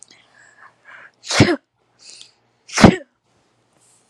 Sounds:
Sneeze